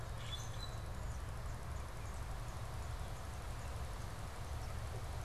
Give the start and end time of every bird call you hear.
0.0s-0.9s: Common Grackle (Quiscalus quiscula)

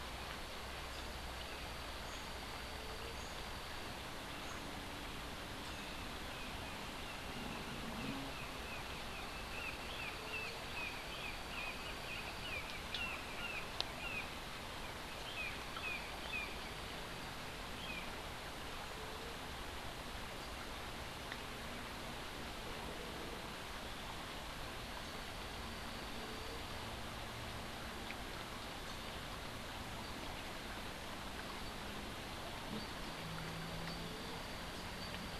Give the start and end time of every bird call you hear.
5.6s-16.8s: Brown Jay (Psilorhinus morio)
17.6s-18.2s: Brown Jay (Psilorhinus morio)

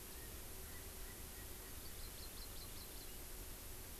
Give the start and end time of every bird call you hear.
0.0s-2.0s: Erckel's Francolin (Pternistis erckelii)
1.8s-3.1s: Hawaii Amakihi (Chlorodrepanis virens)

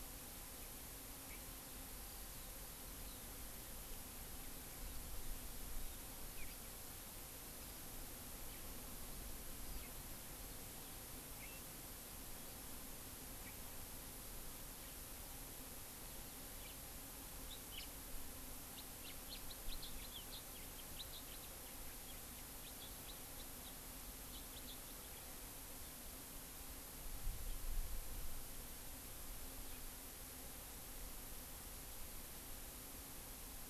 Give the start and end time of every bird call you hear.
16.5s-16.8s: House Finch (Haemorhous mexicanus)
17.5s-18.0s: House Finch (Haemorhous mexicanus)
18.7s-21.5s: House Finch (Haemorhous mexicanus)
22.6s-23.8s: House Finch (Haemorhous mexicanus)
24.2s-25.3s: House Finch (Haemorhous mexicanus)

